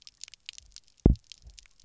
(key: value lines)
label: biophony, double pulse
recorder: SoundTrap 300